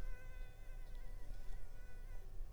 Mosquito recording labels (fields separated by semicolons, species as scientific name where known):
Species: Culex pipiens complex; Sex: female; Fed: unfed; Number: one; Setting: cup